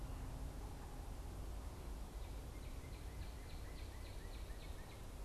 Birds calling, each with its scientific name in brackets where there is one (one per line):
Northern Cardinal (Cardinalis cardinalis)